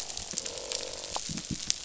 {"label": "biophony, croak", "recorder": "SoundTrap 500"}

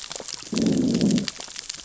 {"label": "biophony, growl", "recorder": "SoundTrap 600 or HydroMoth"}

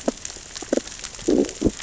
{"label": "biophony, growl", "recorder": "SoundTrap 600 or HydroMoth"}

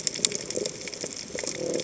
{"label": "biophony", "recorder": "HydroMoth"}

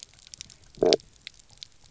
{"label": "biophony, stridulation", "recorder": "SoundTrap 300"}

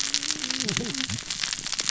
{"label": "biophony, cascading saw", "recorder": "SoundTrap 600 or HydroMoth"}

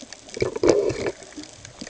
{"label": "ambient", "recorder": "HydroMoth"}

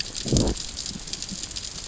{"label": "biophony, growl", "recorder": "SoundTrap 600 or HydroMoth"}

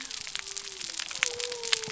{"label": "biophony", "recorder": "SoundTrap 300"}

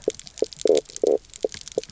{"label": "biophony, knock croak", "recorder": "SoundTrap 300"}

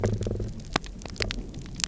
{"label": "biophony", "recorder": "SoundTrap 300"}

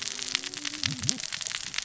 {"label": "biophony, cascading saw", "recorder": "SoundTrap 600 or HydroMoth"}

